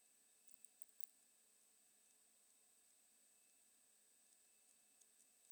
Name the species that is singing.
Poecilimon deplanatus